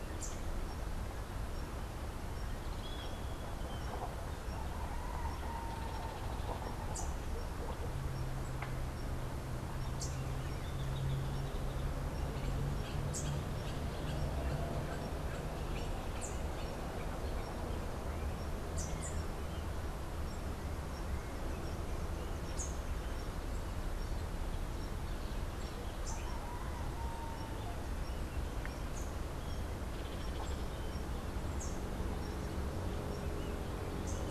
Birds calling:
Hoffmann's Woodpecker (Melanerpes hoffmannii)
Rufous-capped Warbler (Basileuterus rufifrons)

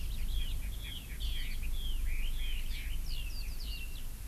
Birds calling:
Red-billed Leiothrix (Leiothrix lutea)

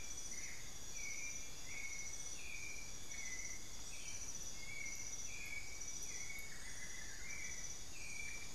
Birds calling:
White-necked Thrush (Turdus albicollis)
Amazonian Barred-Woodcreeper (Dendrocolaptes certhia)
Bartlett's Tinamou (Crypturellus bartletti)

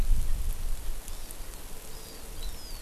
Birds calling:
Hawaii Amakihi (Chlorodrepanis virens)

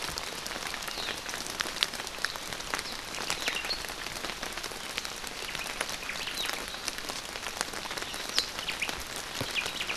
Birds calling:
Omao (Myadestes obscurus)

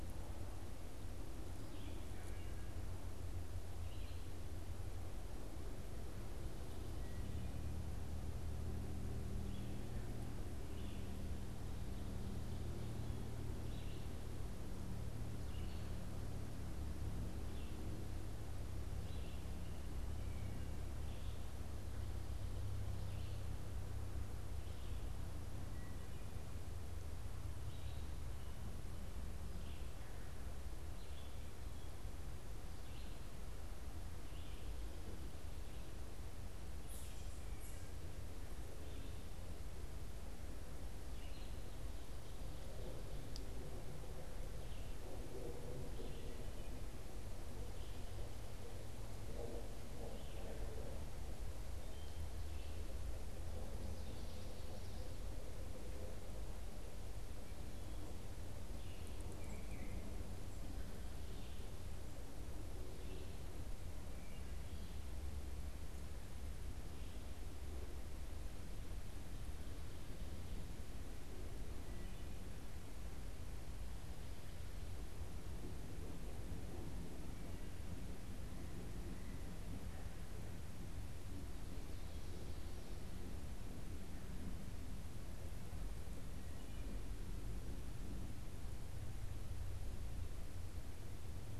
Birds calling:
Red-eyed Vireo (Vireo olivaceus)
unidentified bird

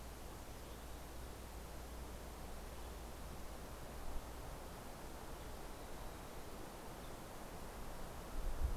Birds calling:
Western Tanager (Piranga ludoviciana)

